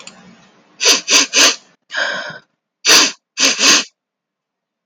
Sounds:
Sniff